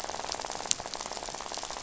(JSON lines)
{"label": "biophony, rattle", "recorder": "SoundTrap 500"}